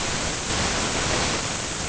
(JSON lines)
{"label": "ambient", "recorder": "HydroMoth"}